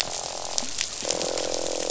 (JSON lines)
{"label": "biophony, croak", "recorder": "SoundTrap 500"}